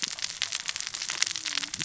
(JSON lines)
{"label": "biophony, cascading saw", "recorder": "SoundTrap 600 or HydroMoth"}